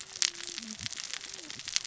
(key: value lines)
label: biophony, cascading saw
recorder: SoundTrap 600 or HydroMoth